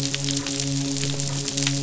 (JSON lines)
{"label": "biophony, midshipman", "recorder": "SoundTrap 500"}